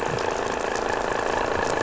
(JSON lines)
{"label": "anthrophony, boat engine", "recorder": "SoundTrap 500"}